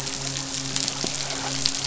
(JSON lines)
{"label": "biophony, midshipman", "recorder": "SoundTrap 500"}